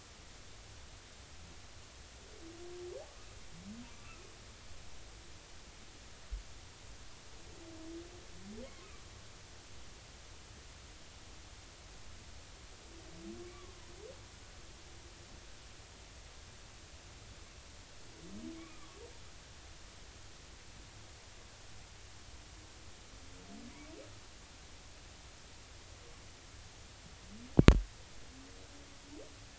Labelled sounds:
13.5	13.8	humpback whale, 1.1 to 1.2 kHz
18.5	19.0	humpback whale, 1.1 to 2.5 kHz

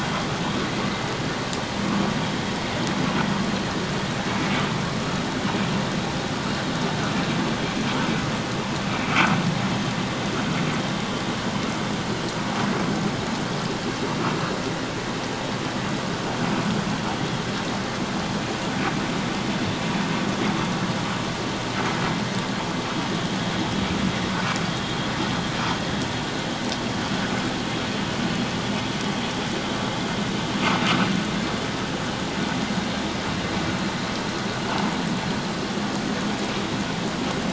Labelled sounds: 8.9	9.4	vessel noise, 1.1 to 2.4 kHz

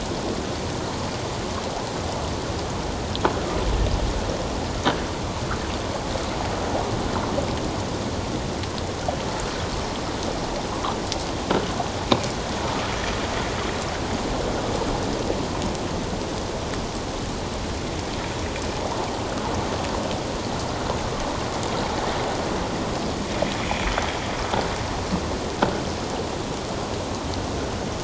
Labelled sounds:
23.6	23.9	sound from a nearby beach, 2.2 to 2.6 kHz

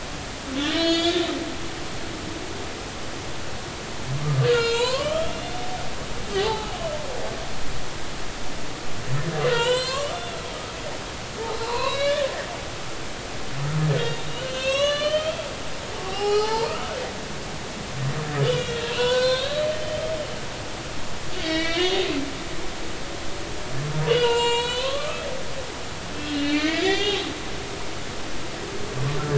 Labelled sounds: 0.7	1.3	humpback whale, 1.3 to 6.7 kHz
4.5	5.3	humpback whale, 0.86 to 4.4 kHz
6.3	6.7	humpback whale, 0.80 to 1.3 kHz
9.5	10.4	humpback whale, 0.86 to 7.9 kHz
11.6	12.3	humpback whale, 0.86 to 4.6 kHz
14.0	15.4	humpback whale, 1.0 to 6.7 kHz
16.0	16.7	humpback whale, 0.80 to 5.5 kHz
18.4	20.1	humpback whale, 0.93 to 5.7 kHz
21.4	22.0	humpback whale, 1.6 to 4.8 kHz
24.1	25.3	humpback whale, 0.83 to 8.0 kHz
26.3	27.2	humpback whale, 1.8 to 5.1 kHz

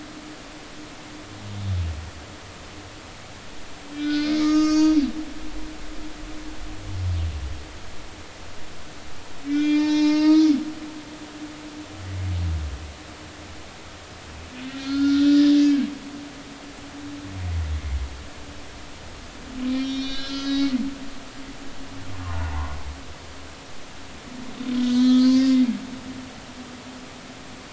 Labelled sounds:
0.1	0.3	humpback whale, 3.3 to 3.5 kHz
3.9	5.1	humpback whale, 1.2 to 6.9 kHz
9.5	10.5	humpback whale, 0.86 to 7.0 kHz
11.1	11.3	humpback whale, 6.0 to 6.2 kHz
14.7	15.4	humpback whale, 1.3 to 4.5 kHz
19.7	20.7	humpback whale, 1.3 to 5.9 kHz
22.5	22.8	humpback whale, 0.80 to 1.2 kHz
24.8	25.6	humpback whale, 1.2 to 6.4 kHz

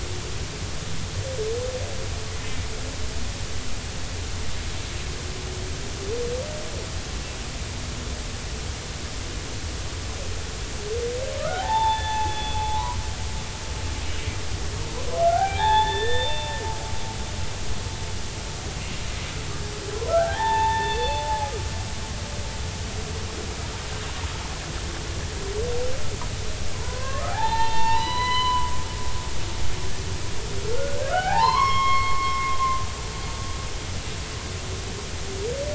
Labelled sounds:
11.4	13.0	humpback whale, 0.80 to 3.6 kHz
15.2	16.5	humpback whale, 0.80 to 3.8 kHz
20.1	21.2	humpback whale, 0.80 to 4.4 kHz
26.7	29.7	humpback whale, 0.80 to 6.0 kHz
30.7	32.6	humpback whale, 0.80 to 5.5 kHz

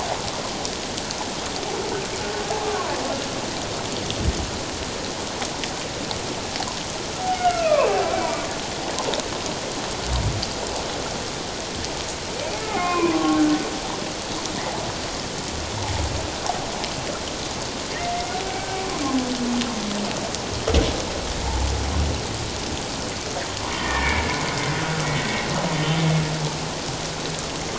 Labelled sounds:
2.6	2.9	humpback whale, 0.94 to 1.3 kHz
7.4	7.9	humpback whale, 0.91 to 2.7 kHz
12.6	13.6	humpback whale, 0.94 to 2.6 kHz
18.5	18.8	humpback whale, 1.5 to 1.6 kHz
21.4	21.7	humpback whale, 0.78 to 0.97 kHz
23.7	24.2	humpback whale, 1.7 to 2.4 kHz
25.0	25.5	humpback whale, 1.8 to 2.0 kHz

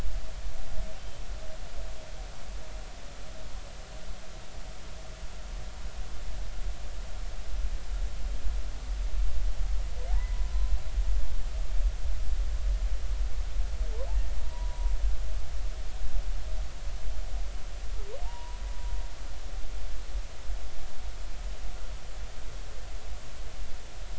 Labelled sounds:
10.1	10.5	humpback whale, 0.80 to 1.0 kHz
15.4	15.9	humpback whale, 0.93 to 1.1 kHz
18.2	18.6	humpback whale, 0.83 to 1.0 kHz

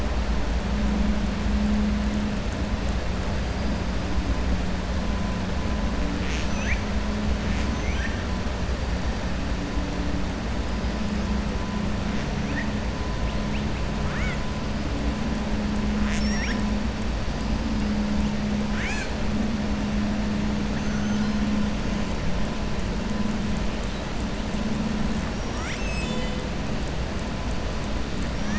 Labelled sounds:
6.1	6.8	killer whale, southern resident, 1.6 to 7.8 kHz
7.7	8.2	killer whale, southern resident, 1.6 to 3.2 kHz
14.0	14.4	killer whale, southern resident, 1.1 to 3.8 kHz

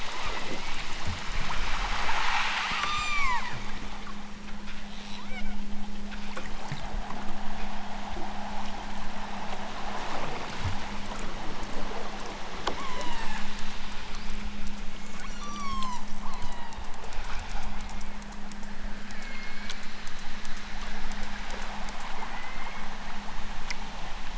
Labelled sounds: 0.2	0.9	killer whale, southern Alaska resident, 1.5 to 3.0 kHz
2.8	3.6	killer whale, southern Alaska resident, 0.46 to 8.0 kHz
4.9	5.6	killer whale, southern Alaska resident, 0.55 to 3.2 kHz
12.7	13.5	killer whale, southern Alaska resident, 0.51 to 8.0 kHz
15.3	17.0	killer whale, southern Alaska resident, 0.51 to 8.0 kHz
19.0	19.8	killer whale, southern Alaska resident, 1.3 to 3.0 kHz
22.4	22.9	killer whale, southern Alaska resident, 1.5 to 3.5 kHz

